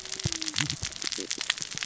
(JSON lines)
{"label": "biophony, cascading saw", "recorder": "SoundTrap 600 or HydroMoth"}